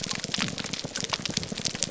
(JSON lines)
{"label": "biophony", "recorder": "SoundTrap 300"}